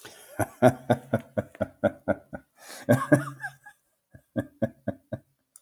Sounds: Laughter